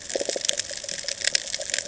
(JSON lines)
{"label": "ambient", "recorder": "HydroMoth"}